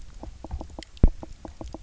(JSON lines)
{"label": "biophony, knock", "recorder": "SoundTrap 300"}